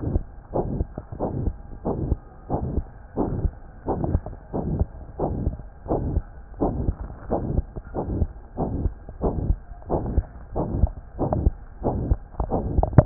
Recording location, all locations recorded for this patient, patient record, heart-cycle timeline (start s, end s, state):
aortic valve (AV)
aortic valve (AV)+pulmonary valve (PV)+tricuspid valve (TV)+mitral valve (MV)
#Age: Child
#Sex: Male
#Height: 131.0 cm
#Weight: 32.5 kg
#Pregnancy status: False
#Murmur: Present
#Murmur locations: aortic valve (AV)+mitral valve (MV)+pulmonary valve (PV)+tricuspid valve (TV)
#Most audible location: pulmonary valve (PV)
#Systolic murmur timing: Holosystolic
#Systolic murmur shape: Plateau
#Systolic murmur grading: III/VI or higher
#Systolic murmur pitch: High
#Systolic murmur quality: Harsh
#Diastolic murmur timing: nan
#Diastolic murmur shape: nan
#Diastolic murmur grading: nan
#Diastolic murmur pitch: nan
#Diastolic murmur quality: nan
#Outcome: Abnormal
#Campaign: 2015 screening campaign
0.00	0.52	unannotated
0.52	0.68	S1
0.68	0.76	systole
0.76	0.88	S2
0.88	1.19	diastole
1.19	1.30	S1
1.30	1.36	systole
1.36	1.52	S2
1.52	1.83	diastole
1.83	1.98	S1
1.98	2.04	systole
2.04	2.20	S2
2.20	2.48	diastole
2.48	2.61	S1
2.61	2.74	systole
2.74	2.86	S2
2.86	3.15	diastole
3.15	3.30	S1
3.30	3.38	systole
3.38	3.54	S2
3.54	3.85	diastole
3.85	3.97	S1
3.97	4.08	systole
4.08	4.24	S2
4.24	4.52	diastole
4.52	4.64	S1
4.64	4.74	systole
4.74	4.90	S2
4.90	5.18	diastole
5.18	5.33	S1
5.33	5.44	systole
5.44	5.56	S2
5.56	5.86	diastole
5.86	6.02	S1
6.02	6.14	systole
6.14	6.26	S2
6.26	6.59	diastole
6.59	6.72	S1
6.72	6.78	systole
6.78	6.94	S2
6.94	7.28	diastole
7.28	7.40	S1
7.40	7.52	systole
7.52	7.68	S2
7.68	7.93	diastole
7.93	8.07	S1
8.07	8.18	systole
8.18	8.32	S2
8.32	8.56	diastole
8.56	8.68	S1
8.68	8.78	systole
8.78	8.92	S2
8.92	9.19	diastole
9.19	9.34	S1
9.34	9.44	systole
9.44	9.60	S2
9.60	9.87	diastole
9.87	10.02	S1
10.02	10.08	systole
10.08	10.24	S2
10.24	13.06	unannotated